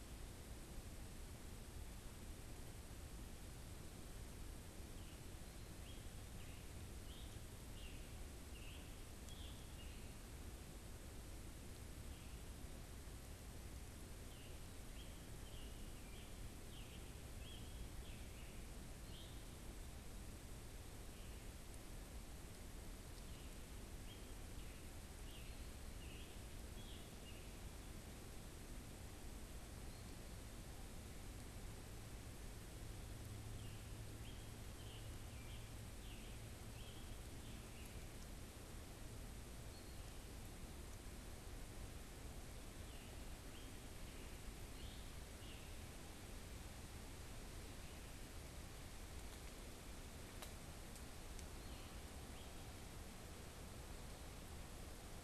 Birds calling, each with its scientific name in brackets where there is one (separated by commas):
Scarlet Tanager (Piranga olivacea)